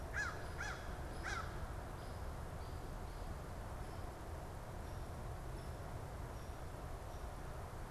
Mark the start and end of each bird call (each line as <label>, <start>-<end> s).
American Crow (Corvus brachyrhynchos), 0.0-1.7 s